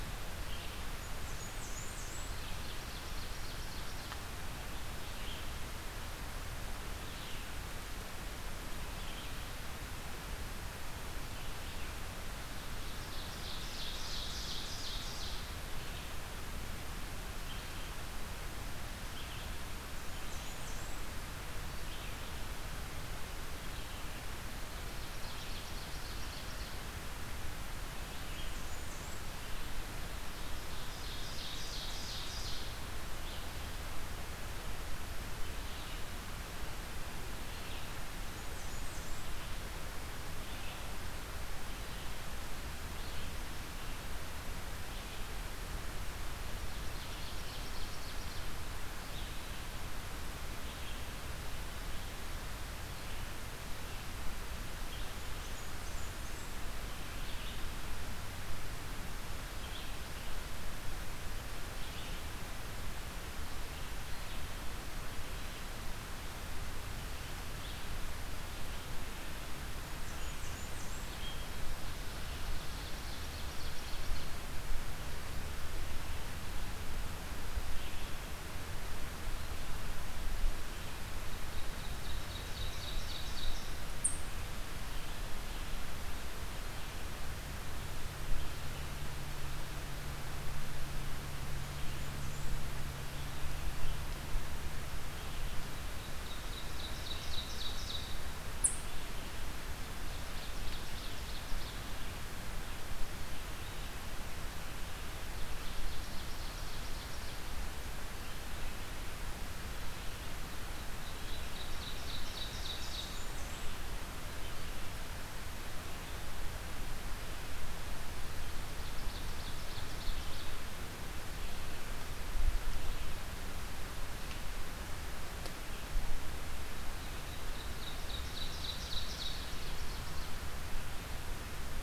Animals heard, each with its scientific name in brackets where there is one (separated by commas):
Ovenbird (Seiurus aurocapilla), Red-eyed Vireo (Vireo olivaceus), unidentified call, Blackburnian Warbler (Setophaga fusca)